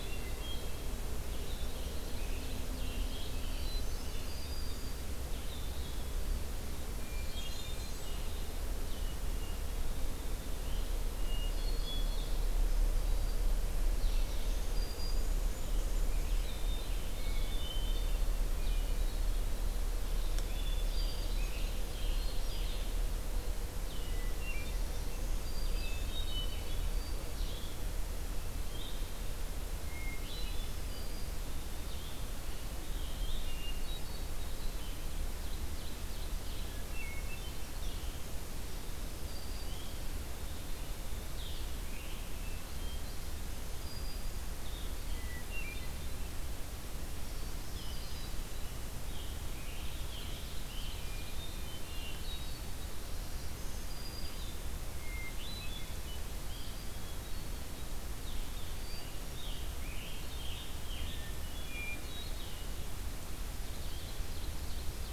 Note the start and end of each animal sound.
0.0s-0.9s: Hermit Thrush (Catharus guttatus)
0.0s-22.9s: Red-eyed Vireo (Vireo olivaceus)
1.4s-3.4s: Ovenbird (Seiurus aurocapilla)
3.5s-4.4s: Hermit Thrush (Catharus guttatus)
6.9s-8.2s: Blackburnian Warbler (Setophaga fusca)
6.9s-8.3s: Hermit Thrush (Catharus guttatus)
11.1s-12.4s: Hermit Thrush (Catharus guttatus)
13.9s-16.5s: Blackburnian Warbler (Setophaga fusca)
14.6s-15.3s: Black-throated Green Warbler (Setophaga virens)
17.1s-19.7s: Hermit Thrush (Catharus guttatus)
20.3s-21.8s: Hermit Thrush (Catharus guttatus)
23.9s-24.8s: Hermit Thrush (Catharus guttatus)
25.2s-65.1s: Red-eyed Vireo (Vireo olivaceus)
25.7s-27.3s: Hermit Thrush (Catharus guttatus)
29.7s-30.7s: Hermit Thrush (Catharus guttatus)
30.7s-31.3s: Black-throated Green Warbler (Setophaga virens)
34.5s-36.7s: Ovenbird (Seiurus aurocapilla)
36.6s-37.6s: Hermit Thrush (Catharus guttatus)
39.1s-39.8s: Black-throated Green Warbler (Setophaga virens)
43.6s-44.5s: Black-throated Green Warbler (Setophaga virens)
45.0s-46.3s: Hermit Thrush (Catharus guttatus)
49.5s-51.3s: Ovenbird (Seiurus aurocapilla)
51.3s-52.6s: Hermit Thrush (Catharus guttatus)
53.0s-54.7s: Black-throated Green Warbler (Setophaga virens)
55.0s-56.3s: Hermit Thrush (Catharus guttatus)
58.2s-61.2s: Scarlet Tanager (Piranga olivacea)
61.0s-62.5s: Hermit Thrush (Catharus guttatus)
63.6s-65.1s: Ovenbird (Seiurus aurocapilla)

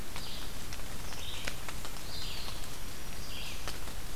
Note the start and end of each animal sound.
0.0s-4.2s: Red-eyed Vireo (Vireo olivaceus)
2.8s-3.7s: Black-throated Green Warbler (Setophaga virens)

